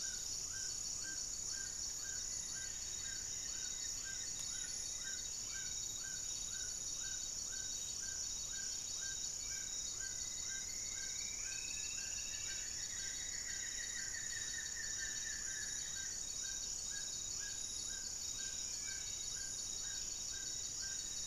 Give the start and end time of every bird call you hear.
0.0s-1.3s: Amazonian Motmot (Momotus momota)
0.0s-21.3s: Amazonian Trogon (Trogon ramonianus)
1.5s-4.2s: Black-faced Antthrush (Formicarius analis)
2.1s-5.5s: Goeldi's Antbird (Akletos goeldii)
5.5s-12.9s: Spot-winged Antshrike (Pygiptila stellaris)
9.9s-12.8s: Striped Woodcreeper (Xiphorhynchus obsoletus)
11.1s-13.4s: Plain-winged Antshrike (Thamnophilus schistaceus)
11.8s-16.4s: Black-faced Antthrush (Formicarius analis)
14.7s-19.6s: Buff-breasted Wren (Cantorchilus leucotis)
18.7s-21.3s: Spot-winged Antshrike (Pygiptila stellaris)
19.7s-21.3s: Black-faced Antthrush (Formicarius analis)

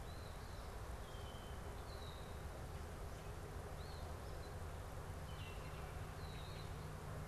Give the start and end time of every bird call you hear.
0.0s-5.1s: Eastern Phoebe (Sayornis phoebe)
0.0s-6.9s: Red-winged Blackbird (Agelaius phoeniceus)

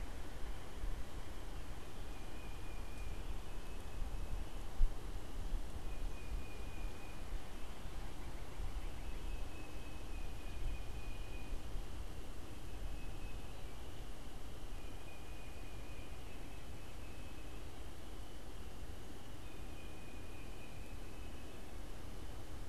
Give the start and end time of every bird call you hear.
0.0s-11.6s: Tufted Titmouse (Baeolophus bicolor)
7.1s-9.7s: unidentified bird
12.5s-22.7s: Tufted Titmouse (Baeolophus bicolor)

